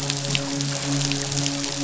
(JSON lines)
{"label": "biophony, midshipman", "recorder": "SoundTrap 500"}